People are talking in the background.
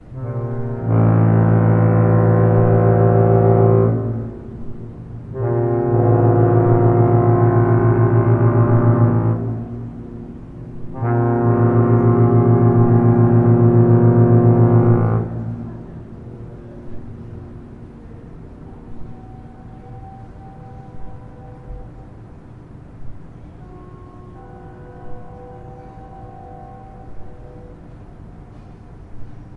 15.7 18.8

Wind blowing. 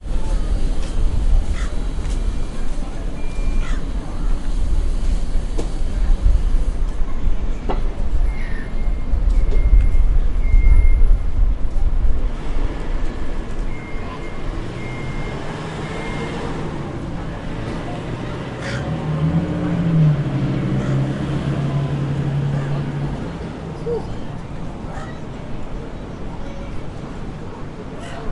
0.0 2.8

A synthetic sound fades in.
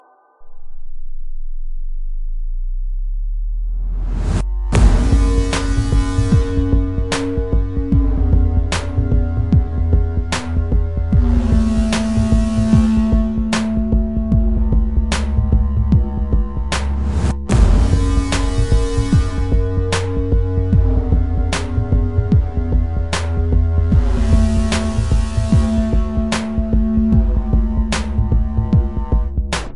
3.1 4.6

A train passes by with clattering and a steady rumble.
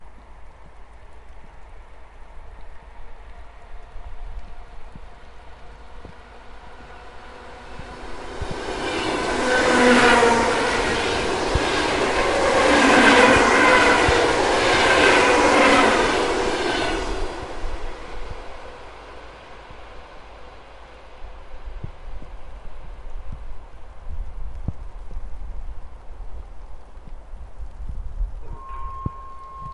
7.3 21.1

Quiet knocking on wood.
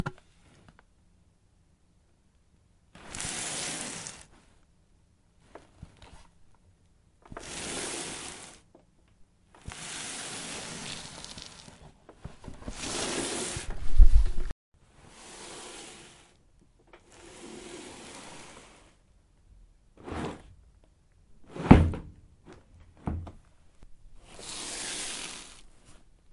5.4 5.7

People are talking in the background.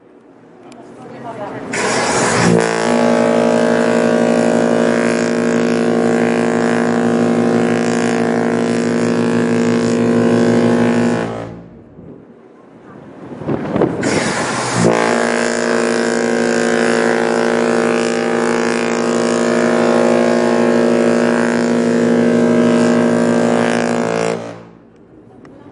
0.6 1.8

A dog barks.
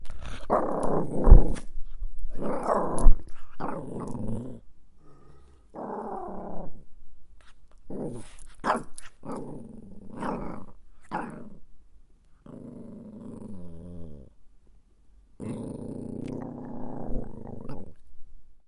8.6 9.0

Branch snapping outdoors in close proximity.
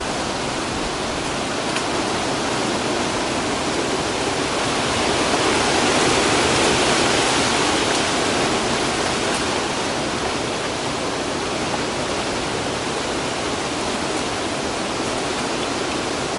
1.6 2.0

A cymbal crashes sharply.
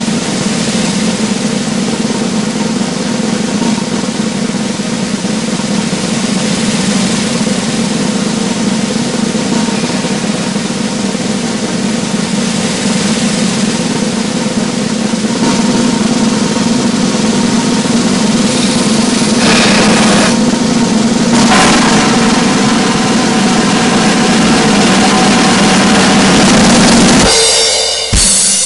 19.4 20.5, 21.4 22.4, 27.3 28.7

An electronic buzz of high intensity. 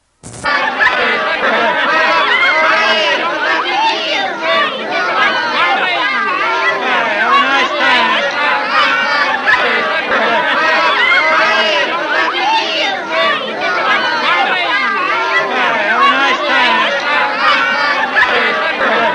0.0 0.4

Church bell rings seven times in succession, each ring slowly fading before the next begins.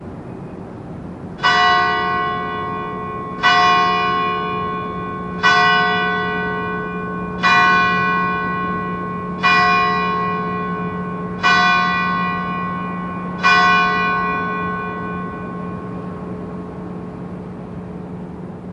1.4 15.4

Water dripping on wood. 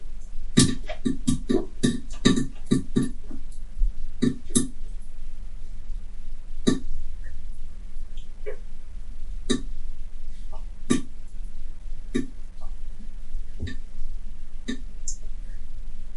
0.5 3.2, 4.2 4.7, 6.6 6.9, 9.4 9.6, 10.8 11.1, 12.1 12.3, 13.6 13.8, 14.7 14.8

